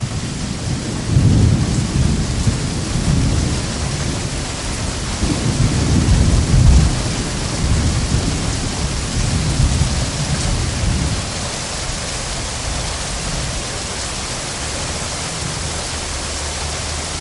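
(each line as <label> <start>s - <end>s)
Thunderstorm with heavy rain. 0.0s - 11.2s
Heavy rain falling. 11.2s - 17.2s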